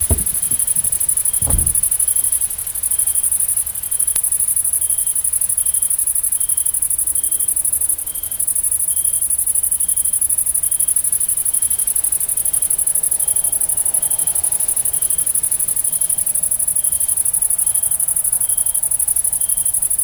Can insects be heard?
yes